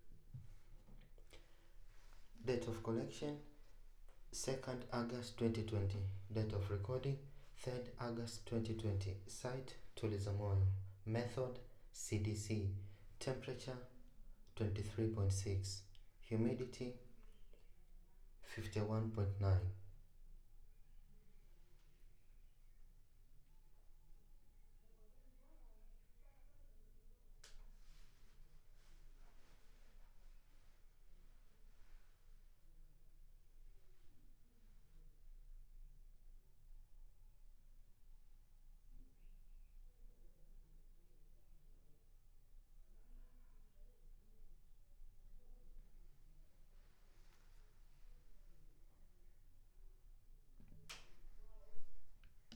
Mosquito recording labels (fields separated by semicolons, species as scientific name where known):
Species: no mosquito; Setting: cup